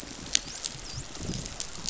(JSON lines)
{"label": "biophony, dolphin", "recorder": "SoundTrap 500"}